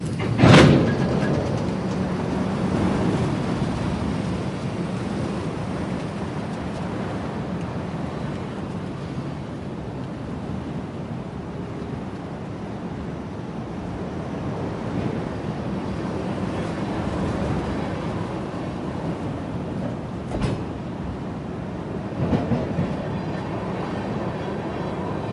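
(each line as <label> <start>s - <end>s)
A distant train is passing by. 0.0s - 25.3s
Metallic impact sound. 0.3s - 1.0s
A train drives off in the distance. 20.1s - 21.1s
A train drives off in the distance. 22.2s - 23.0s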